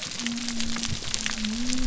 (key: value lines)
label: biophony
recorder: SoundTrap 300